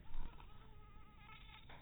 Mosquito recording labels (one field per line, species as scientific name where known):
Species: mosquito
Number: one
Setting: cup